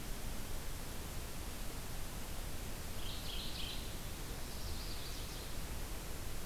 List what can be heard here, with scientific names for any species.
Geothlypis philadelphia